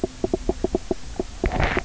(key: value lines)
label: biophony, knock croak
recorder: SoundTrap 300